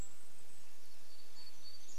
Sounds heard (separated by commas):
Canada Jay call, Golden-crowned Kinglet call, warbler song